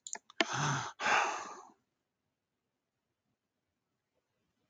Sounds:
Sigh